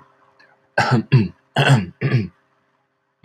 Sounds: Throat clearing